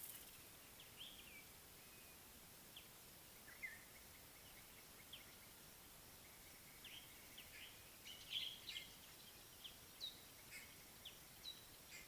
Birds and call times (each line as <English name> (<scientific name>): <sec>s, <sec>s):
Common Bulbul (Pycnonotus barbatus): 1.0s, 8.1s
Scarlet-chested Sunbird (Chalcomitra senegalensis): 9.9s